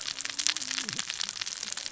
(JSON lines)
{"label": "biophony, cascading saw", "recorder": "SoundTrap 600 or HydroMoth"}